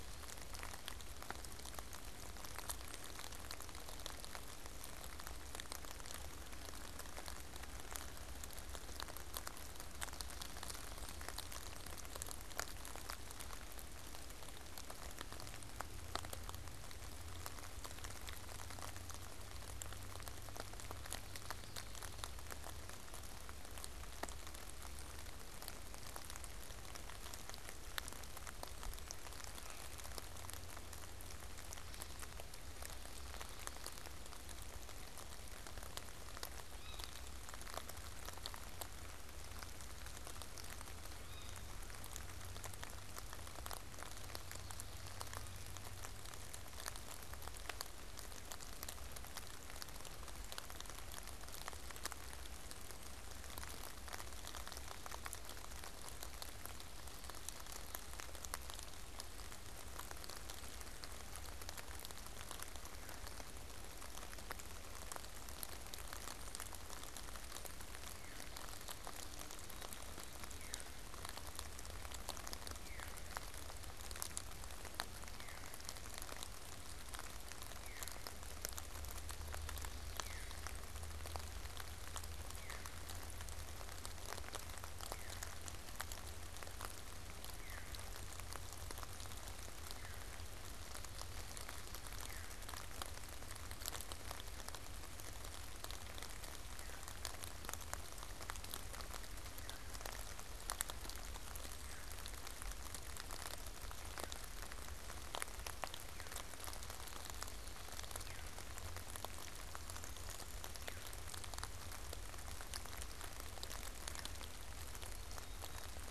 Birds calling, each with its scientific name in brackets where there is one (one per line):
unidentified bird
Black-capped Chickadee (Poecile atricapillus)
Veery (Catharus fuscescens)